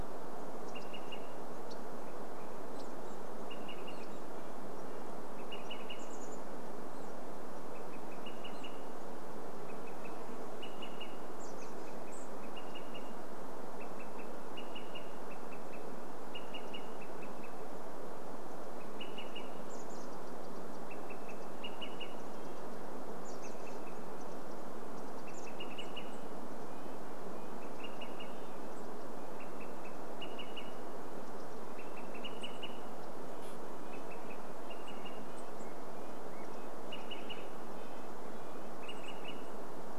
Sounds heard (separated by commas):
unidentified sound, Swainson's Thrush song, Olive-sided Flycatcher call, Chestnut-backed Chickadee call, Red-breasted Nuthatch song, insect buzz